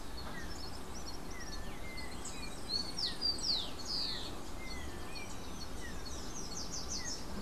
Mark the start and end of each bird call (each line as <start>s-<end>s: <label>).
0.0s-4.5s: Rufous-collared Sparrow (Zonotrichia capensis)
0.0s-7.4s: Yellow-backed Oriole (Icterus chrysater)
1.9s-3.3s: Yellow-faced Grassquit (Tiaris olivaceus)
5.8s-7.4s: Slate-throated Redstart (Myioborus miniatus)